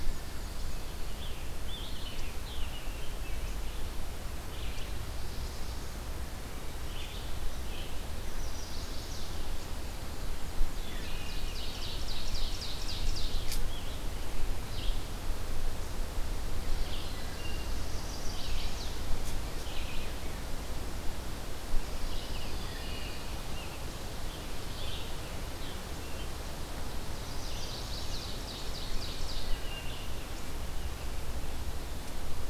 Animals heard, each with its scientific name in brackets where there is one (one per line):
Scarlet Tanager (Piranga olivacea)
Ovenbird (Seiurus aurocapilla)
Pine Warbler (Setophaga pinus)
Wood Thrush (Hylocichla mustelina)
Chestnut-sided Warbler (Setophaga pensylvanica)
Black-throated Blue Warbler (Setophaga caerulescens)
Red-eyed Vireo (Vireo olivaceus)